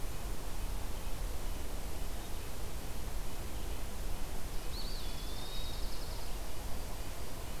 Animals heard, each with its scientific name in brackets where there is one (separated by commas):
Red-breasted Nuthatch (Sitta canadensis), Dark-eyed Junco (Junco hyemalis), Eastern Wood-Pewee (Contopus virens)